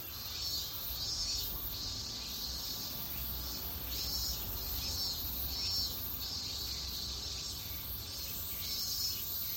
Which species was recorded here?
Meimuna opalifera